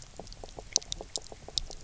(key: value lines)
label: biophony, knock croak
recorder: SoundTrap 300